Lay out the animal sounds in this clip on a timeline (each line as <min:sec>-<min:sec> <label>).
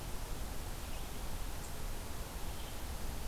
0:00.7-0:03.3 Red-eyed Vireo (Vireo olivaceus)